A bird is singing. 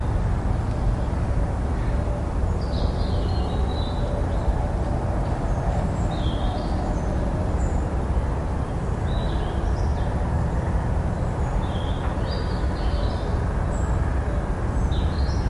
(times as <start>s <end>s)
2.5s 4.9s, 6.0s 7.8s, 9.2s 14.3s, 15.1s 15.5s